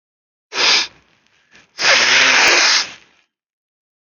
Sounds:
Sniff